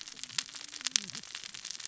{"label": "biophony, cascading saw", "recorder": "SoundTrap 600 or HydroMoth"}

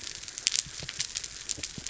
{"label": "biophony", "recorder": "SoundTrap 300"}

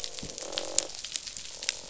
{"label": "biophony, croak", "recorder": "SoundTrap 500"}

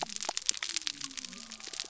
{"label": "biophony", "recorder": "SoundTrap 300"}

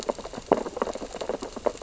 {"label": "biophony, sea urchins (Echinidae)", "recorder": "SoundTrap 600 or HydroMoth"}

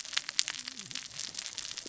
{"label": "biophony, cascading saw", "recorder": "SoundTrap 600 or HydroMoth"}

